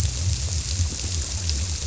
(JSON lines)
{"label": "biophony", "recorder": "SoundTrap 300"}